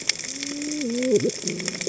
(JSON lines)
{"label": "biophony, cascading saw", "recorder": "HydroMoth"}